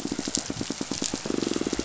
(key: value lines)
label: biophony, pulse
recorder: SoundTrap 500